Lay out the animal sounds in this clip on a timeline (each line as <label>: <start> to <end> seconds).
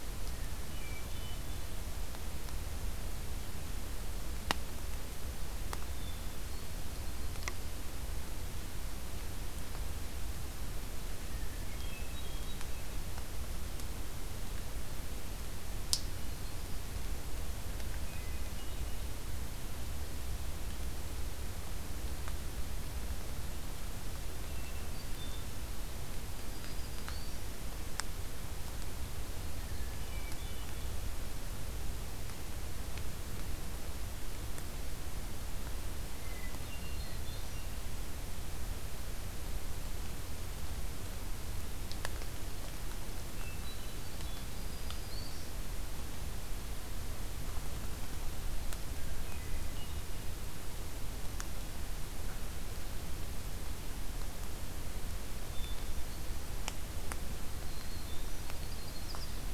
Hermit Thrush (Catharus guttatus): 0.2 to 1.5 seconds
Hermit Thrush (Catharus guttatus): 5.8 to 7.7 seconds
Hermit Thrush (Catharus guttatus): 11.3 to 13.0 seconds
Hermit Thrush (Catharus guttatus): 17.7 to 19.0 seconds
Hermit Thrush (Catharus guttatus): 24.3 to 25.6 seconds
Black-throated Green Warbler (Setophaga virens): 26.3 to 27.5 seconds
Hermit Thrush (Catharus guttatus): 29.5 to 31.0 seconds
Hermit Thrush (Catharus guttatus): 36.1 to 37.7 seconds
Black-throated Green Warbler (Setophaga virens): 36.8 to 37.6 seconds
Hermit Thrush (Catharus guttatus): 43.3 to 44.4 seconds
Black-throated Green Warbler (Setophaga virens): 44.4 to 45.5 seconds
Hermit Thrush (Catharus guttatus): 48.6 to 50.2 seconds
Hermit Thrush (Catharus guttatus): 55.4 to 56.6 seconds
Black-throated Green Warbler (Setophaga virens): 57.6 to 58.5 seconds
Yellow-rumped Warbler (Setophaga coronata): 58.4 to 59.3 seconds